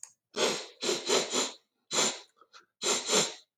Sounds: Sniff